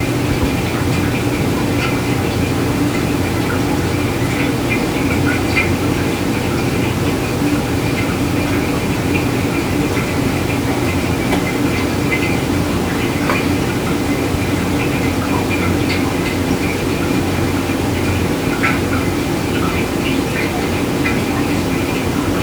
Is someone taping something with packing tape?
no